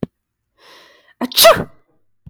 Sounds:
Sneeze